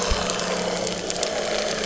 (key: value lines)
label: anthrophony, boat engine
recorder: SoundTrap 300